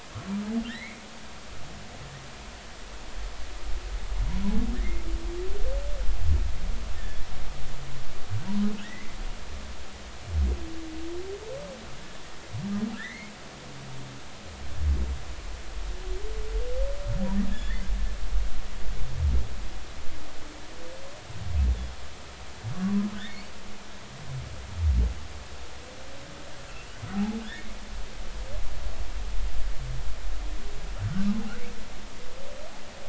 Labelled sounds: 0.7	1.0	humpback whale, 1.7 to 2.5 kHz
4.7	5.0	humpback whale, 1.7 to 2.2 kHz
8.8	9.2	humpback whale, 1.8 to 2.2 kHz
12.9	13.3	humpback whale, 1.3 to 2.3 kHz
17.5	17.9	humpback whale, 1.6 to 7.0 kHz
23.2	23.5	humpback whale, 2.1 to 4.6 kHz
27.1	27.7	humpback whale, 0.80 to 2.0 kHz

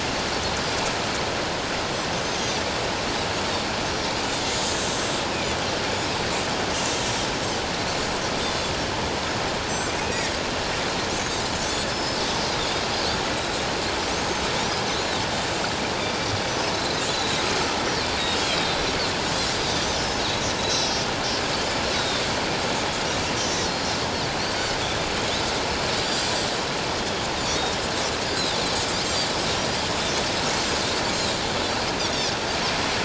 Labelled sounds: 2.3	2.6	Pacific white-sided dolphin, 4.7 to 5.1 kHz
4.7	5.0	Pacific white-sided dolphin, 7.4 to 7.9 kHz
8.4	8.8	Pacific white-sided dolphin, 3.4 to 7.8 kHz
9.7	10.3	Pacific white-sided dolphin, 2.4 to 7.7 kHz
11.1	11.4	Pacific white-sided dolphin, 5.8 to 6.7 kHz
11.9	12.2	Pacific white-sided dolphin, 5.1 to 5.4 kHz
14.9	15.2	Pacific white-sided dolphin, 3.5 to 4.2 kHz
17.1	17.5	Pacific white-sided dolphin, 3.7 to 4.1 kHz
18.4	18.8	Pacific white-sided dolphin, 3.1 to 4.2 kHz
20.0	20.2	Pacific white-sided dolphin, 5.1 to 5.7 kHz
20.6	22.2	Pacific white-sided dolphin, 3.5 to 6.0 kHz
23.3	24.0	Pacific white-sided dolphin, 4.1 to 6.3 kHz
24.4	24.8	Pacific white-sided dolphin, 4.1 to 4.7 kHz

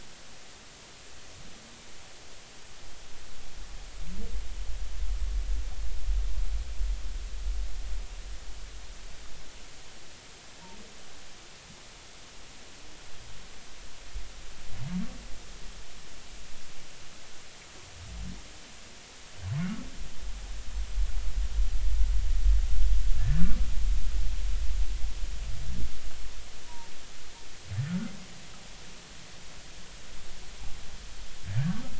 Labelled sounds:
23.3	23.6	humpback whale, 1.4 to 1.6 kHz
26.7	26.9	humpback whale, 0.86 to 1.0 kHz
31.6	31.8	humpback whale, 1.5 to 1.7 kHz

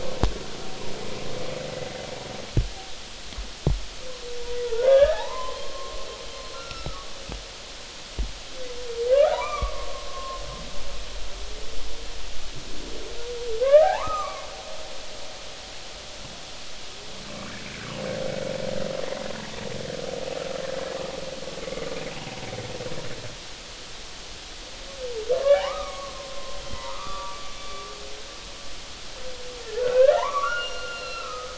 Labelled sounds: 4.6	7.0	humpback whale, 0.80 to 1.8 kHz
9.1	10.4	humpback whale, 0.86 to 2.5 kHz
13.6	14.5	humpback whale, 0.80 to 2.5 kHz
25.4	27.8	humpback whale, 0.80 to 3.5 kHz
29.7	31.5	humpback whale, 0.80 to 4.3 kHz

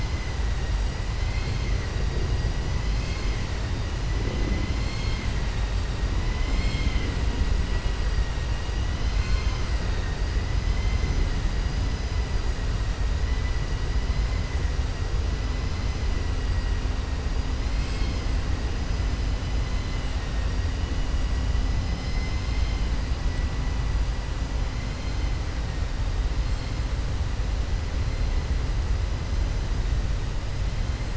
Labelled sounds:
21.8	22.8	vessel noise, 2.0 to 6.1 kHz

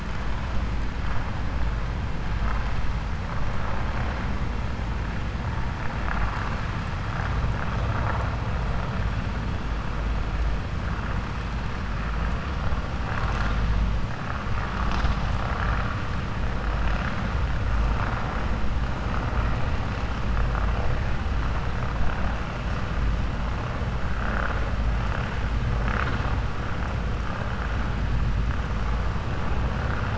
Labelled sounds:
6.0	6.6	vessel noise, 0.78 to 2.7 kHz

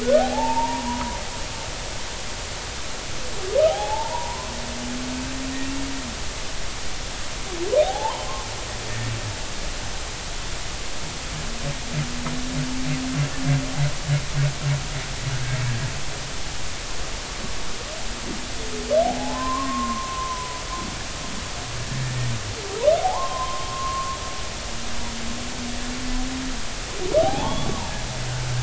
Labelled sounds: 0.0	1.2	humpback whale, 0.80 to 1.5 kHz
3.7	4.5	humpback whale, 0.80 to 3.5 kHz
7.8	8.5	humpback whale, 0.80 to 1.1 kHz
19.0	20.6	humpback whale, 0.80 to 1.2 kHz
23.0	24.2	humpback whale, 0.80 to 1.1 kHz
27.2	27.7	humpback whale, 0.80 to 3.5 kHz

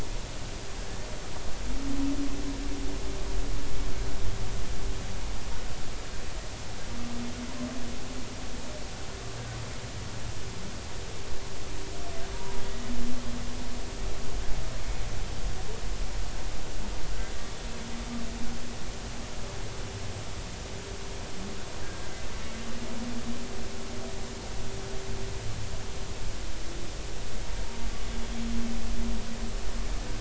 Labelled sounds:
12.3	12.6	humpback whale, 0.90 to 1.0 kHz

